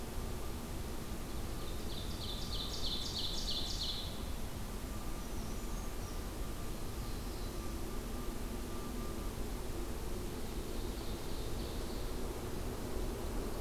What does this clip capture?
Black-throated Blue Warbler, Ovenbird, Brown Creeper